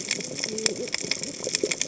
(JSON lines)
{"label": "biophony, cascading saw", "recorder": "HydroMoth"}